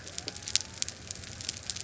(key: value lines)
label: biophony
recorder: SoundTrap 300

label: anthrophony, boat engine
recorder: SoundTrap 300